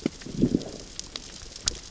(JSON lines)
{"label": "biophony, growl", "recorder": "SoundTrap 600 or HydroMoth"}